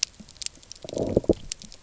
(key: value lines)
label: biophony, low growl
recorder: SoundTrap 300